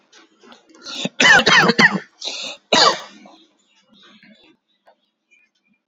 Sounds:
Cough